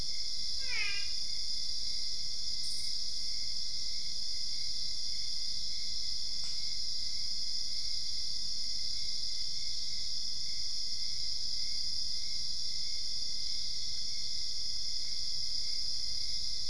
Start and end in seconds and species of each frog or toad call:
0.4	1.7	brown-spotted dwarf frog
Brazil, 12:30am

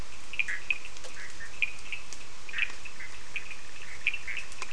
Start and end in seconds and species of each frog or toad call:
0.0	4.7	Cochran's lime tree frog
0.5	0.7	Bischoff's tree frog
2.5	2.7	Bischoff's tree frog
Brazil, 5:30am

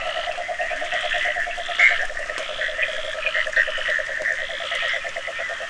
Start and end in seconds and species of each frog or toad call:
0.0	1.8	Cochran's lime tree frog
0.0	5.6	Bischoff's tree frog
0.0	5.6	yellow cururu toad
0.6	1.0	Leptodactylus latrans
Brazil, 12:45am

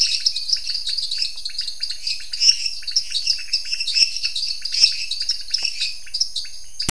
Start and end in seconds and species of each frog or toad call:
0.0	6.5	lesser tree frog
0.0	6.5	dwarf tree frog
0.0	6.5	pointedbelly frog
Brazil, 9:00pm

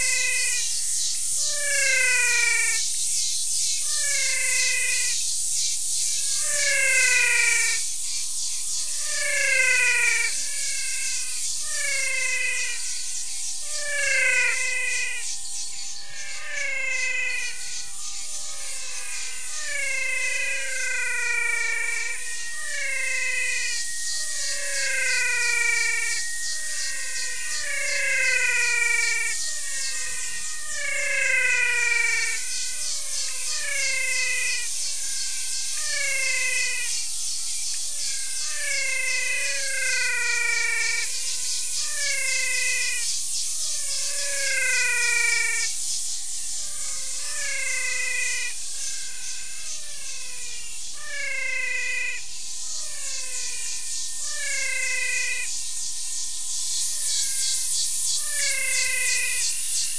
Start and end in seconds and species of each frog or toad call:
0.0	59.9	menwig frog
53.5	53.9	Pithecopus azureus
58.2	58.6	Pithecopus azureus
Brazil, 6:15pm

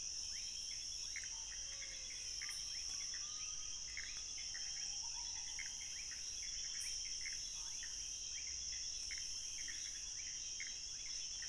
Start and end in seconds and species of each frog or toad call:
0.0	11.4	Pithecopus azureus
0.3	0.5	rufous frog
1.0	11.4	rufous frog
1.3	1.5	Scinax fuscovarius
1.5	2.7	menwig frog
7.5	7.8	Scinax fuscovarius
Brazil, 11:30pm

